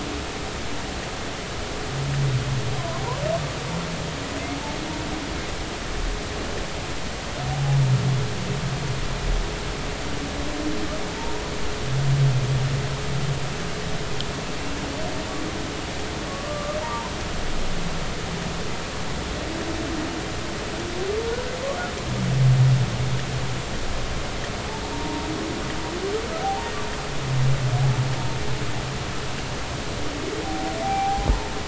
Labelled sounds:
7.5	7.8	humpback whale, 0.80 to 0.86 kHz
16.3	17.1	humpback whale, 0.86 to 1.2 kHz
24.9	25.3	humpback whale, 0.90 to 1.1 kHz
26.4	26.7	humpback whale, 0.80 to 0.99 kHz
30.8	31.3	humpback whale, 0.80 to 0.86 kHz

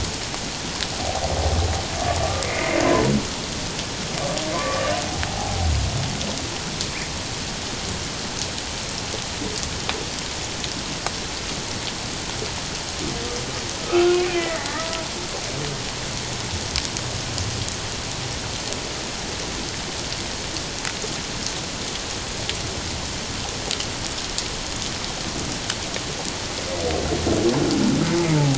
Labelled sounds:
2.2	2.8	humpback whale, 1.1 to 2.2 kHz
4.5	5.6	humpback whale, 0.78 to 1.2 kHz
13.8	15.1	humpback whale, 0.94 to 2.6 kHz
28.3	28.5	humpback whale, 0.78 to 0.97 kHz

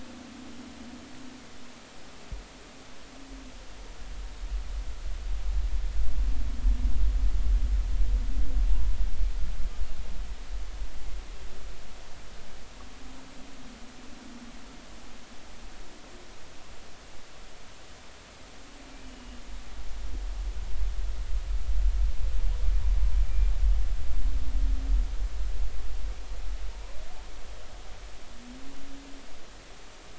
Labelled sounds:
19.0	19.4	humpback whale, 2.8 to 3.0 kHz

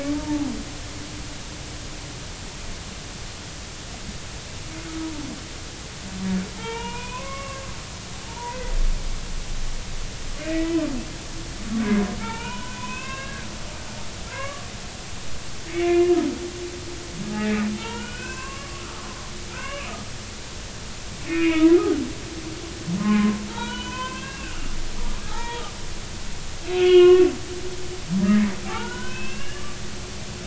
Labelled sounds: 0.1	0.5	humpback whale, 0.80 to 0.96 kHz
6.6	8.7	humpback whale, 0.80 to 2.7 kHz
10.4	10.8	humpback whale, 1.9 to 2.6 kHz
12.2	13.5	humpback whale, 0.83 to 3.8 kHz
14.3	14.7	humpback whale, 0.96 to 1.7 kHz
15.7	16.1	humpback whale, 2.0 to 2.5 kHz
17.3	18.8	humpback whale, 0.80 to 3.3 kHz
19.5	19.9	humpback whale, 0.96 to 3.0 kHz
21.3	21.8	humpback whale, 0.90 to 2.9 kHz
23.0	24.5	humpback whale, 0.83 to 4.0 kHz
25.3	25.6	humpback whale, 0.80 to 2.0 kHz
26.6	27.3	humpback whale, 1.0 to 3.4 kHz
28.6	29.6	humpback whale, 0.80 to 3.1 kHz

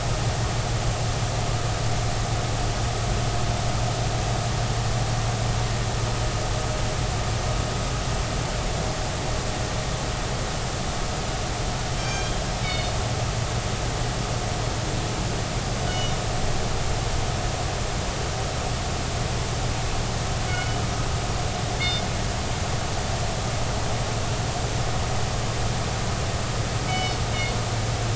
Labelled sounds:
12.0	12.9	killer whale, northern resident, G clan, call N24ii, 1.5 to 6.4 kHz
15.9	16.2	killer whale, northern resident, G clan, call N24ii, 2.8 to 5.9 kHz
20.5	20.8	killer whale, northern resident, G clan, call N24ii, 1.4 to 3.0 kHz
21.8	22.0	killer whale, northern resident, G clan, call N24ii, 3.5 to 3.7 kHz
26.9	27.2	killer whale, northern resident, G clan, call N24ii, 4.4 to 5.2 kHz
27.9	28.1	killer whale, northern resident, G clan, call N24ii, 2.2 to 3.1 kHz

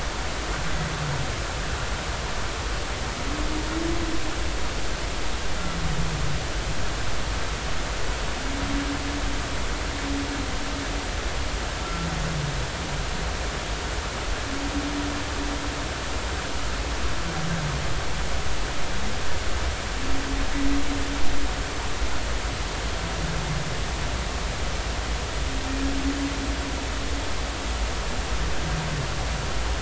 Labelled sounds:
11.8	12.1	humpback whale, 1.3 to 1.4 kHz

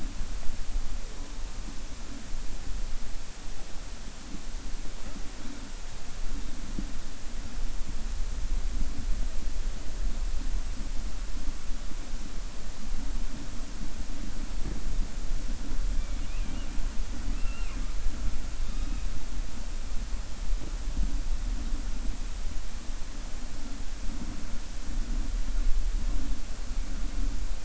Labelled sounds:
15.9	16.7	killer whale, 1.6 to 3.6 kHz

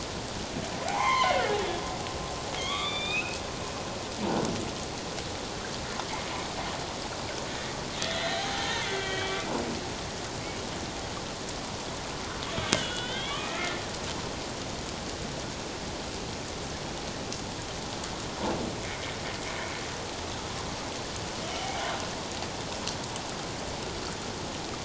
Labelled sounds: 0.9	1.4	humpback whale, 0.78 to 3.3 kHz
2.6	3.4	humpback whale, 1.1 to 4.8 kHz
8.0	9.5	humpback whale, 0.78 to 4.3 kHz
12.6	13.8	humpback whale, 1.1 to 3.8 kHz
18.8	19.1	humpback whale, 2.0 to 2.3 kHz
21.6	21.9	humpback whale, 0.78 to 0.84 kHz

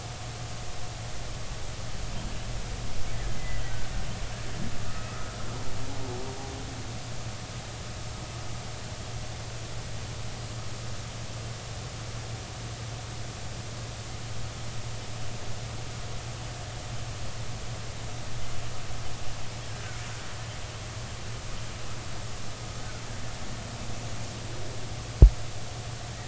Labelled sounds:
3.3	3.6	killer whale, Bigg's (transient), 1.9 to 2.1 kHz
4.9	5.3	killer whale, Bigg's (transient), 1.1 to 1.4 kHz

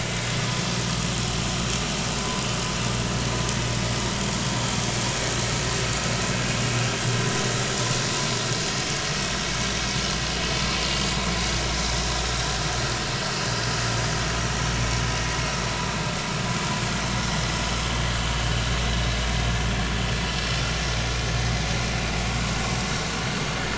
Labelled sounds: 2.2	2.4	vessel noise, 0.96 to 1.1 kHz
12.6	12.8	vessel noise, 4.2 to 4.4 kHz

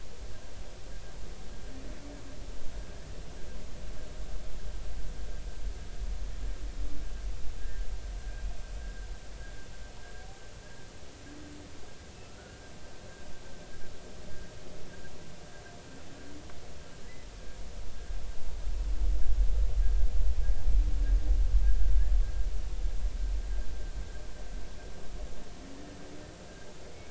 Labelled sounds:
7.6	7.9	humpback whale, 1.5 to 1.9 kHz
12.4	12.6	humpback whale, 1.3 to 1.5 kHz

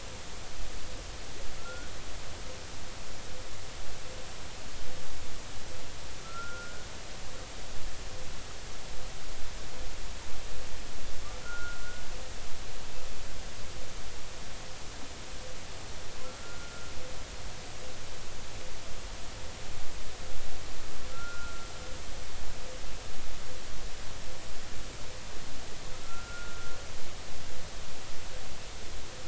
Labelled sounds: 1.6	1.9	humpback whale, 1.3 to 1.5 kHz
6.2	6.9	humpback whale, 1.3 to 1.6 kHz
11.4	12.0	humpback whale, 1.3 to 1.5 kHz
16.2	16.9	humpback whale, 1.3 to 1.4 kHz
21.1	21.7	humpback whale, 1.3 to 1.5 kHz
26.0	26.7	humpback whale, 1.3 to 1.5 kHz

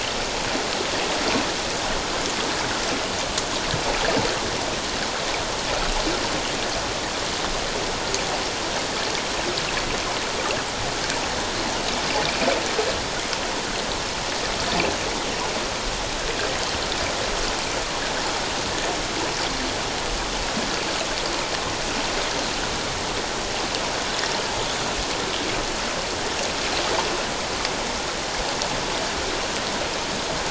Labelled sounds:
12.2	12.5	water noise, 2.2 to 2.7 kHz

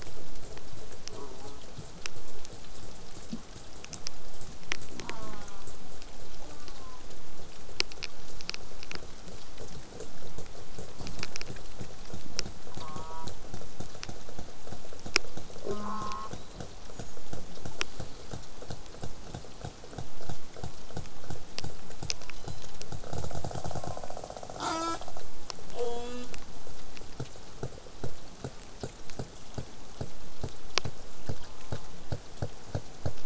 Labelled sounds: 1.1	1.6	killer whale, southern resident, J pod, call S04, 0.15 to 1.4 kHz
5.0	5.7	killer whale, southern resident, J pod, call S04, 0.16 to 1.6 kHz
6.4	7.1	killer whale, southern resident, J pod, call S04, 0.60 to 1.6 kHz
12.7	13.3	killer whale, southern resident, J pod, call S04, 0.19 to 1.6 kHz
15.7	16.3	killer whale, southern resident, J pod, call S04, 0.15 to 8.0 kHz
16.3	17.2	killer whale, southern resident, whistle, 3.4 to 7.1 kHz
22.2	22.8	killer whale, southern resident, 2.8 to 8.0 kHz
23.7	24.2	killer whale, southern resident, 0.73 to 1.2 kHz
24.6	25.0	killer whale, southern resident, J pod, call S04, 0.15 to 8.0 kHz
25.7	26.3	killer whale, southern resident, J pod, call S04, 0.19 to 8.0 kHz
26.6	31.0	killer whale, southern resident, 3.2 to 8.0 kHz
31.4	32.0	killer whale, southern resident, J pod, call S04, 0.15 to 1.5 kHz

